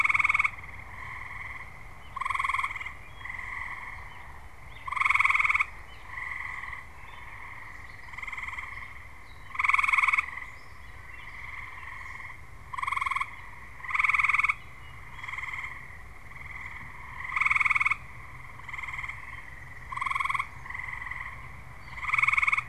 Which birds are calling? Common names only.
Gray Catbird